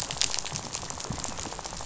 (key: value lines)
label: biophony, rattle
recorder: SoundTrap 500